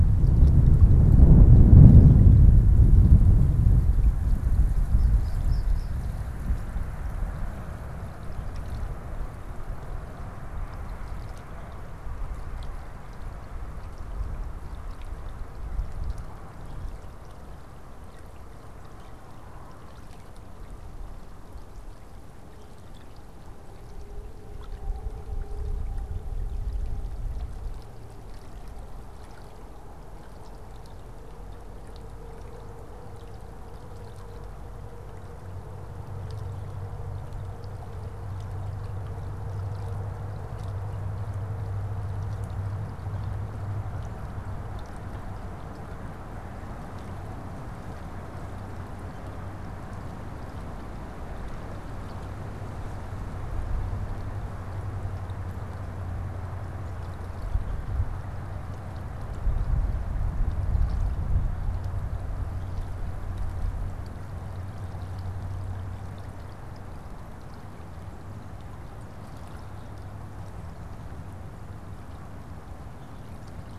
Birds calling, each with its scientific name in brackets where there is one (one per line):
American Goldfinch (Spinus tristis)